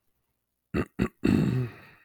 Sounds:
Throat clearing